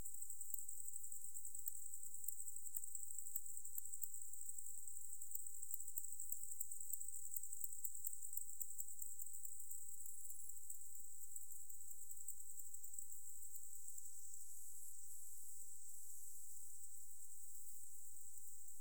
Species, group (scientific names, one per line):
Decticus albifrons
Orthoptera